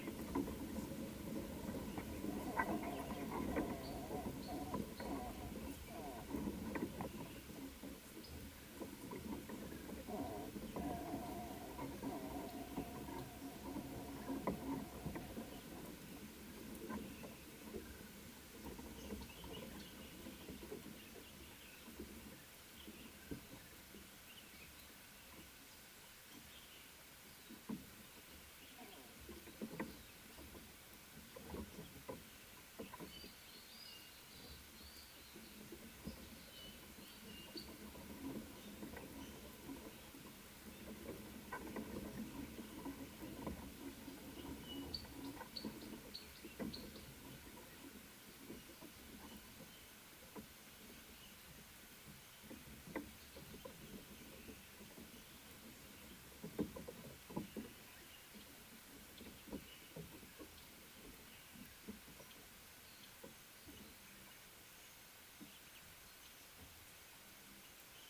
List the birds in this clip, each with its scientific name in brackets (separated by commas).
Little Bee-eater (Merops pusillus)